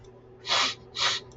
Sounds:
Sniff